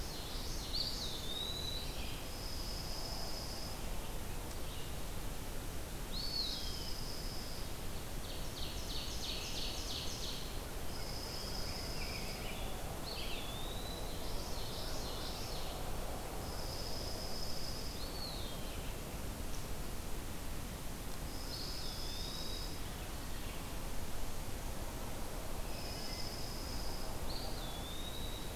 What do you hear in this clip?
Common Yellowthroat, Red-eyed Vireo, Eastern Wood-Pewee, Brown Creeper, Dark-eyed Junco, Ovenbird, Rose-breasted Grosbeak, Wood Thrush